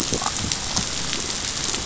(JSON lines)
{"label": "biophony, damselfish", "recorder": "SoundTrap 500"}